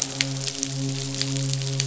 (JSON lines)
{"label": "biophony, midshipman", "recorder": "SoundTrap 500"}